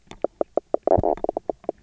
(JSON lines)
{"label": "biophony, knock croak", "recorder": "SoundTrap 300"}